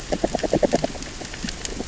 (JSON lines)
{"label": "biophony, grazing", "recorder": "SoundTrap 600 or HydroMoth"}